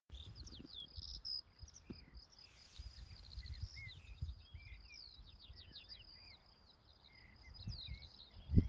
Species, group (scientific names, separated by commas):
Gryllus campestris, Orthoptera